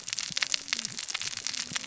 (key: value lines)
label: biophony, cascading saw
recorder: SoundTrap 600 or HydroMoth